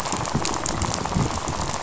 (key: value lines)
label: biophony, rattle
recorder: SoundTrap 500